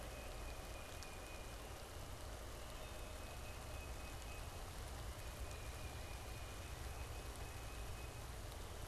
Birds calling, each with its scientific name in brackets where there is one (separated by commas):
Tufted Titmouse (Baeolophus bicolor)